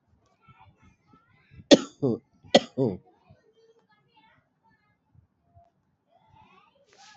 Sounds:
Cough